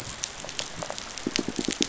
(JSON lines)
{"label": "biophony, rattle response", "recorder": "SoundTrap 500"}
{"label": "biophony, pulse", "recorder": "SoundTrap 500"}